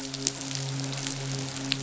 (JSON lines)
{"label": "biophony, midshipman", "recorder": "SoundTrap 500"}